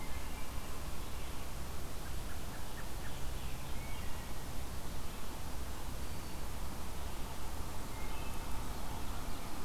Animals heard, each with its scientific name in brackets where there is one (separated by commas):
Red-eyed Vireo (Vireo olivaceus), Wood Thrush (Hylocichla mustelina), American Robin (Turdus migratorius)